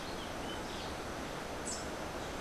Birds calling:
Rufous-breasted Wren (Pheugopedius rutilus)
Rufous-capped Warbler (Basileuterus rufifrons)

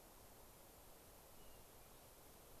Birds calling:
Hermit Thrush (Catharus guttatus)

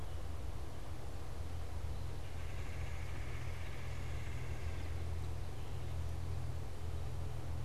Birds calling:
Red-bellied Woodpecker (Melanerpes carolinus)

